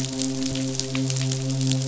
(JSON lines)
{"label": "biophony, midshipman", "recorder": "SoundTrap 500"}